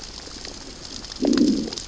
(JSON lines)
{"label": "biophony, growl", "recorder": "SoundTrap 600 or HydroMoth"}